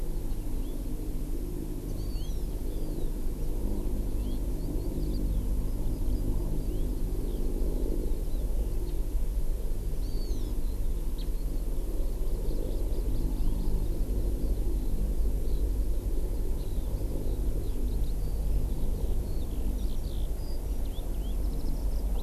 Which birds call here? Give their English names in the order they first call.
Hawaii Amakihi, Eurasian Skylark